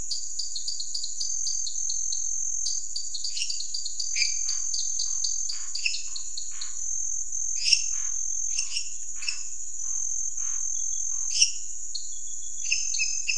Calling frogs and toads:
dwarf tree frog, lesser tree frog, Scinax fuscovarius

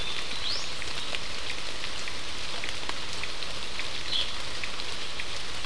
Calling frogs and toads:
Cochran's lime tree frog

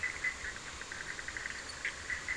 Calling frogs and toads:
Bischoff's tree frog

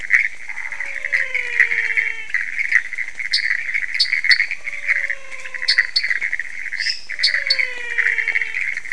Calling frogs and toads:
Pithecopus azureus, Chaco tree frog, menwig frog, dwarf tree frog, lesser tree frog

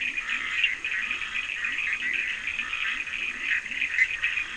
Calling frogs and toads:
Bischoff's tree frog, Leptodactylus latrans, Scinax perereca, Cochran's lime tree frog

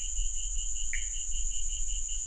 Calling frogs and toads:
Pithecopus azureus

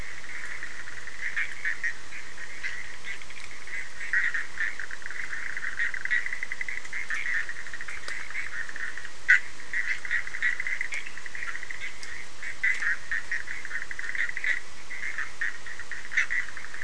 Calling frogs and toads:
Bischoff's tree frog

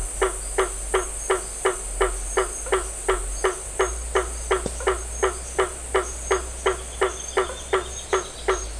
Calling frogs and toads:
blacksmith tree frog

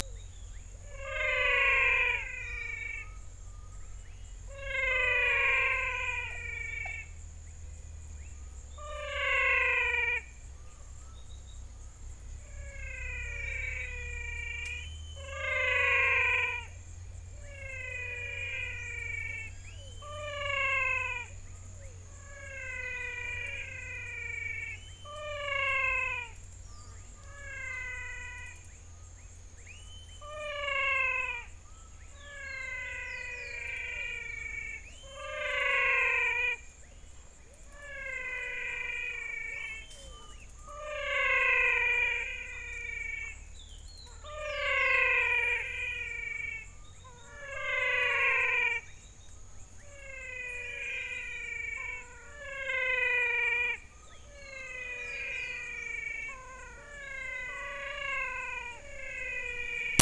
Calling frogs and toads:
rufous frog, menwig frog, spot-legged poison frog

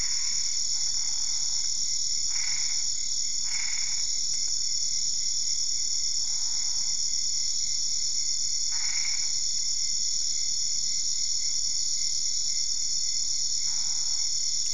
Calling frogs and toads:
Boana albopunctata

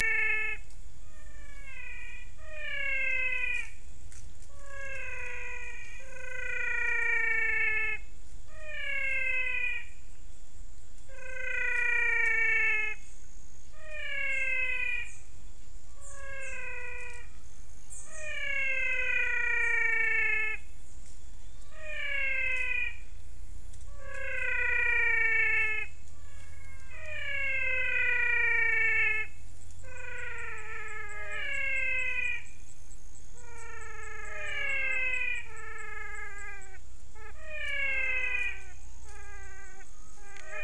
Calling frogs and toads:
waxy monkey tree frog

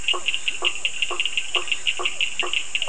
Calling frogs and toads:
blacksmith tree frog, Cochran's lime tree frog, Bischoff's tree frog

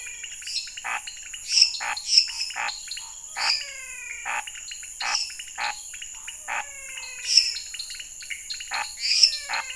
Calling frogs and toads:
dwarf tree frog, lesser tree frog, Scinax fuscovarius, pointedbelly frog, menwig frog, Pithecopus azureus

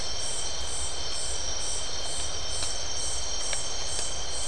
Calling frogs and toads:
none

